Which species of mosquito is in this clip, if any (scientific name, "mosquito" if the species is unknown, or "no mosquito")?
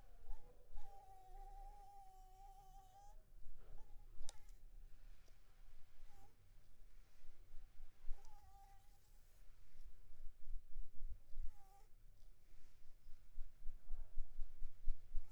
Anopheles arabiensis